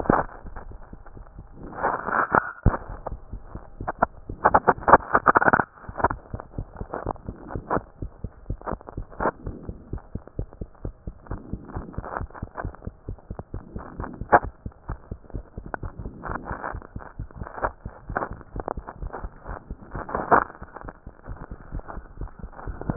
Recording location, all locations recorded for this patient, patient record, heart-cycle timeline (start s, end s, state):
mitral valve (MV)
aortic valve (AV)+pulmonary valve (PV)+tricuspid valve (TV)+mitral valve (MV)
#Age: Child
#Sex: Male
#Height: 129.0 cm
#Weight: 26.8 kg
#Pregnancy status: False
#Murmur: Absent
#Murmur locations: nan
#Most audible location: nan
#Systolic murmur timing: nan
#Systolic murmur shape: nan
#Systolic murmur grading: nan
#Systolic murmur pitch: nan
#Systolic murmur quality: nan
#Diastolic murmur timing: nan
#Diastolic murmur shape: nan
#Diastolic murmur grading: nan
#Diastolic murmur pitch: nan
#Diastolic murmur quality: nan
#Outcome: Normal
#Campaign: 2014 screening campaign
0.00	7.92	unannotated
7.92	8.00	diastole
8.00	8.10	S1
8.10	8.22	systole
8.22	8.32	S2
8.32	8.48	diastole
8.48	8.58	S1
8.58	8.70	systole
8.70	8.80	S2
8.80	8.96	diastole
8.96	9.06	S1
9.06	9.20	systole
9.20	9.32	S2
9.32	9.46	diastole
9.46	9.56	S1
9.56	9.66	systole
9.66	9.76	S2
9.76	9.92	diastole
9.92	10.02	S1
10.02	10.14	systole
10.14	10.22	S2
10.22	10.38	diastole
10.38	10.48	S1
10.48	10.60	systole
10.60	10.68	S2
10.68	10.84	diastole
10.84	10.94	S1
10.94	11.06	systole
11.06	11.14	S2
11.14	11.30	diastole
11.30	11.42	S1
11.42	11.52	systole
11.52	11.60	S2
11.60	11.74	diastole
11.74	11.86	S1
11.86	11.96	systole
11.96	12.04	S2
12.04	12.18	diastole
12.18	12.28	S1
12.28	12.40	systole
12.40	12.48	S2
12.48	12.62	diastole
12.62	12.74	S1
12.74	12.84	systole
12.84	12.94	S2
12.94	13.08	diastole
13.08	13.18	S1
13.18	13.30	systole
13.30	13.38	S2
13.38	13.54	diastole
13.54	13.64	S1
13.64	13.74	systole
13.74	13.84	S2
13.84	13.98	diastole
13.98	22.96	unannotated